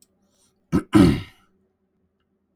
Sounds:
Throat clearing